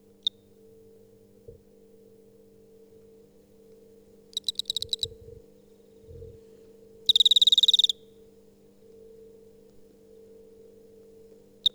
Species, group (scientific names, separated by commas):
Eugryllodes pipiens, Orthoptera